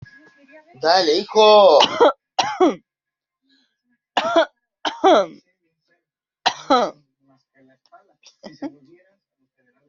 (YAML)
expert_labels:
- quality: good
  cough_type: dry
  dyspnea: false
  wheezing: false
  stridor: false
  choking: false
  congestion: false
  nothing: true
  diagnosis: upper respiratory tract infection
  severity: mild
age: 30
gender: male
respiratory_condition: false
fever_muscle_pain: true
status: symptomatic